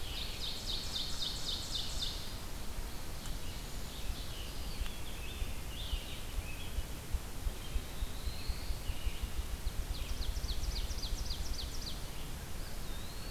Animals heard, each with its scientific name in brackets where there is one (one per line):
Red-eyed Vireo (Vireo olivaceus)
Ovenbird (Seiurus aurocapilla)
Ruffed Grouse (Bonasa umbellus)
Eastern Wood-Pewee (Contopus virens)
Scarlet Tanager (Piranga olivacea)
Black-throated Blue Warbler (Setophaga caerulescens)